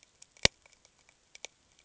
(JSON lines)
{"label": "ambient", "recorder": "HydroMoth"}